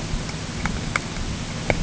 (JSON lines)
{"label": "ambient", "recorder": "HydroMoth"}